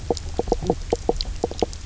{"label": "biophony, knock croak", "recorder": "SoundTrap 300"}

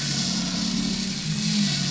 {"label": "anthrophony, boat engine", "recorder": "SoundTrap 500"}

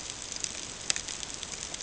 {"label": "ambient", "recorder": "HydroMoth"}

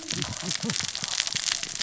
{"label": "biophony, cascading saw", "recorder": "SoundTrap 600 or HydroMoth"}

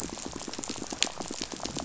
{"label": "biophony, rattle", "recorder": "SoundTrap 500"}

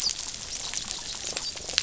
{"label": "biophony, dolphin", "recorder": "SoundTrap 500"}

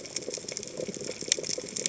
{"label": "biophony, chatter", "recorder": "HydroMoth"}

